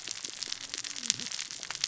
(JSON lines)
{"label": "biophony, cascading saw", "recorder": "SoundTrap 600 or HydroMoth"}